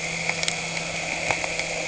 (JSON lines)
{"label": "anthrophony, boat engine", "recorder": "HydroMoth"}